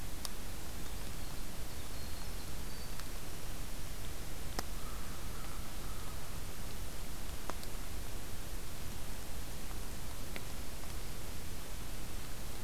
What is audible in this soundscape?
Winter Wren, American Crow